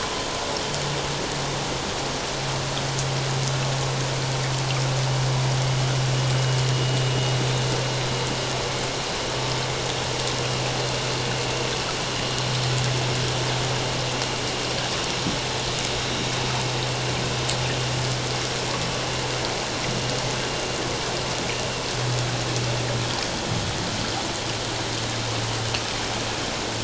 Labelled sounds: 16.1	16.3	vessel noise, 3.8 to 3.9 kHz

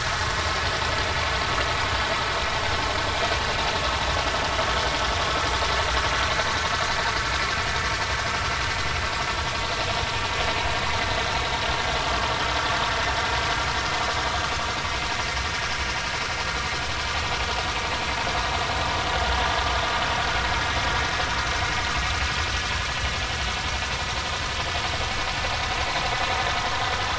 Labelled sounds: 3.4	3.6	vessel noise, 2.6 to 2.9 kHz

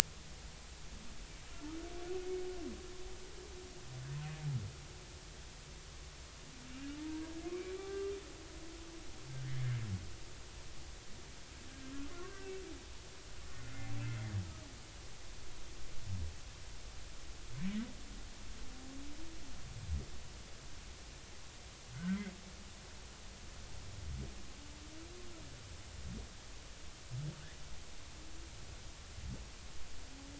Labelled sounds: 7.0	8.1	humpback whale, 0.86 to 1.2 kHz
9.4	9.7	humpback whale, 1.6 to 1.9 kHz
12.1	12.5	humpback whale, 1.0 to 1.6 kHz
13.5	13.8	humpback whale, 1.3 to 1.5 kHz
21.9	22.3	humpback whale, 1.4 to 2.1 kHz

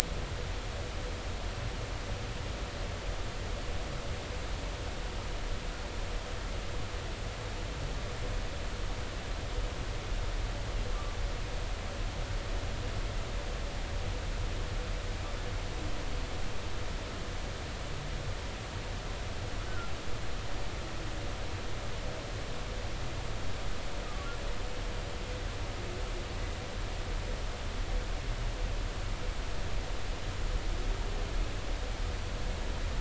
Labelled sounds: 19.7	19.9	humpback whale, 1.3 to 1.6 kHz

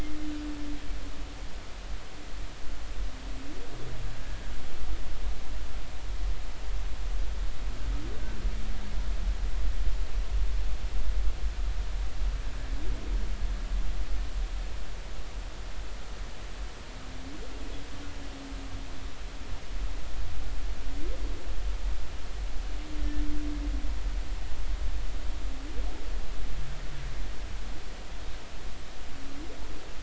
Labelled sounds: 4.2	4.5	humpback whale, 1.5 to 1.7 kHz

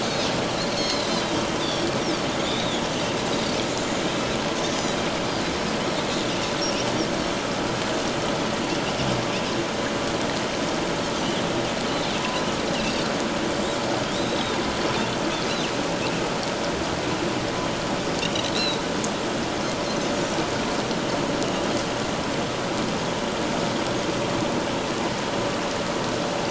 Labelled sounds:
0.8	1.1	Pacific white-sided dolphin, 3.8 to 4.4 kHz
1.6	2.8	Pacific white-sided dolphin, 3.2 to 3.9 kHz
14.1	14.6	Pacific white-sided dolphin, 3.5 to 4.1 kHz
18.3	18.8	Pacific white-sided dolphin, 3.7 to 4.2 kHz

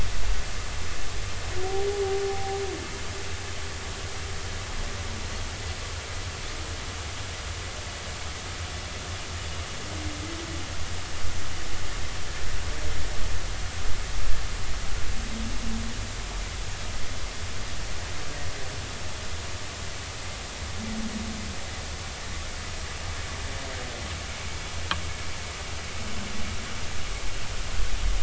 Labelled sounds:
2.3	2.6	humpback whale, 0.80 to 0.83 kHz

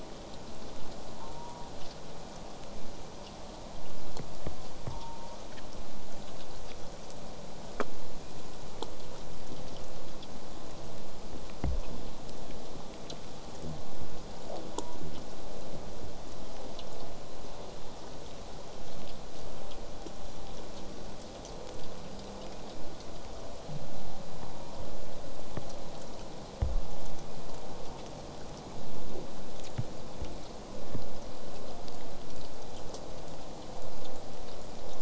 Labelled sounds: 1.2	1.7	killer whale, southern resident, J pod, call S04, 0.69 to 1.3 kHz
4.9	5.4	killer whale, southern resident, J pod, call S04, 0.69 to 1.0 kHz
14.5	15.0	killer whale, southern resident, J pod, call S04, 0.15 to 1.2 kHz
24.5	24.8	killer whale, southern resident, J pod, call S04, 0.39 to 1.1 kHz

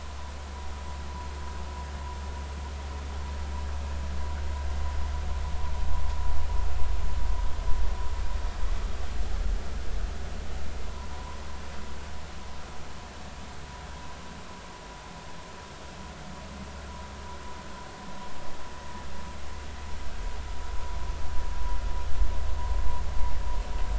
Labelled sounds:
11.1	11.4	vessel noise, 0.93 to 1.1 kHz

